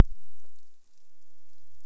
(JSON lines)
{"label": "biophony", "recorder": "SoundTrap 300"}